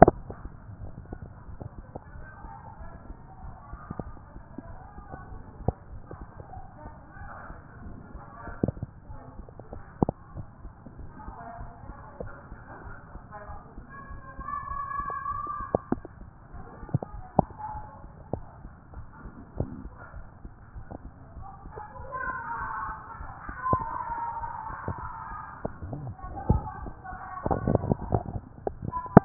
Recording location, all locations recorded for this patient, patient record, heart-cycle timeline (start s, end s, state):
mitral valve (MV)
aortic valve (AV)+pulmonary valve (PV)+tricuspid valve (TV)+mitral valve (MV)
#Age: Child
#Sex: Male
#Height: 142.0 cm
#Weight: 42.4 kg
#Pregnancy status: False
#Murmur: Absent
#Murmur locations: nan
#Most audible location: nan
#Systolic murmur timing: nan
#Systolic murmur shape: nan
#Systolic murmur grading: nan
#Systolic murmur pitch: nan
#Systolic murmur quality: nan
#Diastolic murmur timing: nan
#Diastolic murmur shape: nan
#Diastolic murmur grading: nan
#Diastolic murmur pitch: nan
#Diastolic murmur quality: nan
#Outcome: Normal
#Campaign: 2014 screening campaign
0.00	1.10	unannotated
1.10	1.18	S2
1.18	1.48	diastole
1.48	1.58	S1
1.58	1.76	systole
1.76	1.86	S2
1.86	2.14	diastole
2.14	2.26	S1
2.26	2.42	systole
2.42	2.52	S2
2.52	2.80	diastole
2.80	2.90	S1
2.90	3.08	systole
3.08	3.16	S2
3.16	3.44	diastole
3.44	3.54	S1
3.54	3.70	systole
3.70	3.80	S2
3.80	4.02	diastole
4.02	4.14	S1
4.14	4.34	systole
4.34	4.42	S2
4.42	4.66	diastole
4.66	4.78	S1
4.78	4.96	systole
4.96	5.04	S2
5.04	5.30	diastole
5.30	5.42	S1
5.42	5.58	systole
5.58	5.68	S2
5.68	5.92	diastole
5.92	6.02	S1
6.02	6.18	systole
6.18	6.28	S2
6.28	6.54	diastole
6.54	6.64	S1
6.64	6.84	systole
6.84	6.94	S2
6.94	7.20	diastole
7.20	7.30	S1
7.30	7.48	systole
7.48	7.56	S2
7.56	7.82	diastole
7.82	7.96	S1
7.96	8.14	systole
8.14	8.22	S2
8.22	8.48	diastole
8.48	29.25	unannotated